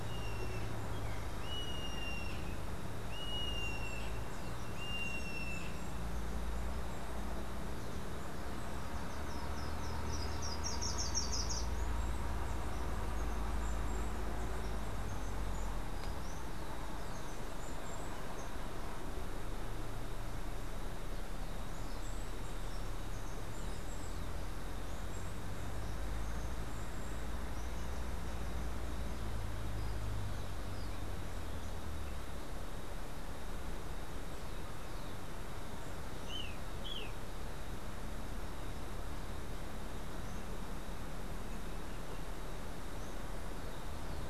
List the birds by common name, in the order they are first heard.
Yellow-headed Caracara, Slate-throated Redstart, Steely-vented Hummingbird, Golden-faced Tyrannulet